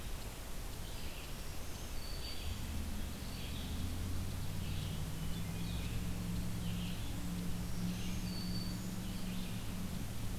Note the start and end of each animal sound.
[0.63, 9.80] Red-eyed Vireo (Vireo olivaceus)
[1.19, 2.87] Black-throated Green Warbler (Setophaga virens)
[7.50, 9.26] Black-throated Green Warbler (Setophaga virens)

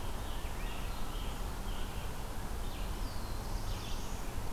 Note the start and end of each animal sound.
[0.00, 2.29] American Robin (Turdus migratorius)
[0.00, 4.53] Red-eyed Vireo (Vireo olivaceus)
[2.60, 4.34] Black-throated Blue Warbler (Setophaga caerulescens)

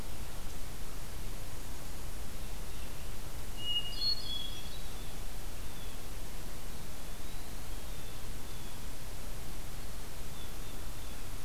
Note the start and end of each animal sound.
[3.50, 4.99] Hermit Thrush (Catharus guttatus)
[5.35, 6.06] Blue Jay (Cyanocitta cristata)
[6.80, 7.57] Eastern Wood-Pewee (Contopus virens)
[7.79, 11.26] Blue Jay (Cyanocitta cristata)

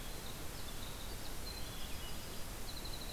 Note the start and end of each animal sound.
[0.00, 3.12] Winter Wren (Troglodytes hiemalis)
[1.20, 2.51] Swainson's Thrush (Catharus ustulatus)

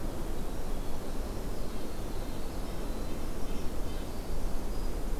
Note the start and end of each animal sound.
[0.00, 5.20] Winter Wren (Troglodytes hiemalis)
[1.57, 4.19] Red-breasted Nuthatch (Sitta canadensis)

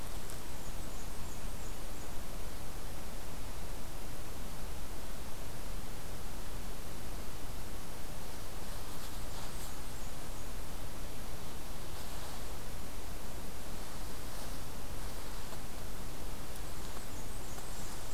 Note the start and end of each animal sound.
[0.37, 2.13] Blackburnian Warbler (Setophaga fusca)
[8.70, 10.51] Blackburnian Warbler (Setophaga fusca)
[16.51, 18.13] Blackburnian Warbler (Setophaga fusca)

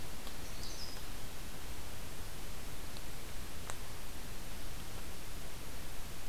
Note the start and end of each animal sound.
[0.42, 1.00] Canada Warbler (Cardellina canadensis)

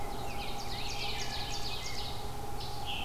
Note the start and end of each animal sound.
[0.00, 2.25] Rose-breasted Grosbeak (Pheucticus ludovicianus)
[0.00, 2.46] Ovenbird (Seiurus aurocapilla)
[0.00, 3.04] Red-eyed Vireo (Vireo olivaceus)
[2.36, 3.04] Scarlet Tanager (Piranga olivacea)

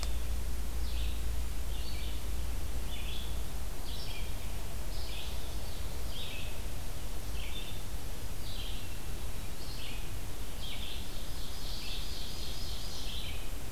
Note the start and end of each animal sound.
[0.00, 13.71] Red-eyed Vireo (Vireo olivaceus)
[10.71, 13.60] Ovenbird (Seiurus aurocapilla)

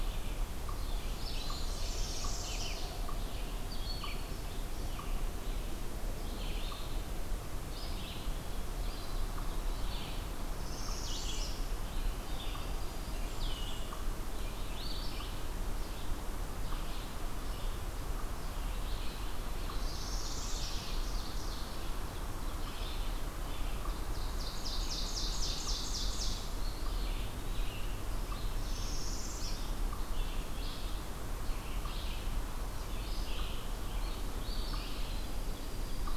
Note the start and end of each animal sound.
[0.00, 36.12] Red-eyed Vireo (Vireo olivaceus)
[0.00, 36.16] unknown mammal
[0.99, 2.82] Blackburnian Warbler (Setophaga fusca)
[1.71, 2.96] Northern Parula (Setophaga americana)
[3.55, 4.61] Broad-winged Hawk (Buteo platypterus)
[10.33, 11.62] Northern Parula (Setophaga americana)
[12.13, 13.22] Black-throated Green Warbler (Setophaga virens)
[12.62, 14.07] Blackburnian Warbler (Setophaga fusca)
[19.62, 20.85] Northern Parula (Setophaga americana)
[19.97, 22.01] Ovenbird (Seiurus aurocapilla)
[23.81, 26.56] Ovenbird (Seiurus aurocapilla)
[26.50, 27.86] Eastern Wood-Pewee (Contopus virens)
[28.28, 29.93] Northern Parula (Setophaga americana)
[34.92, 36.16] Black-throated Green Warbler (Setophaga virens)

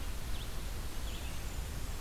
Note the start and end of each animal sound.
[0.00, 1.36] Red-eyed Vireo (Vireo olivaceus)
[0.89, 2.00] Blackburnian Warbler (Setophaga fusca)

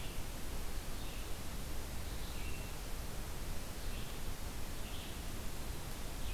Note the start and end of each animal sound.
[0.00, 2.73] Red-eyed Vireo (Vireo olivaceus)
[3.57, 6.34] Red-eyed Vireo (Vireo olivaceus)

